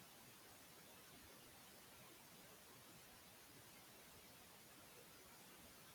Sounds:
Throat clearing